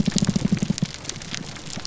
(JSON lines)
{"label": "biophony", "recorder": "SoundTrap 300"}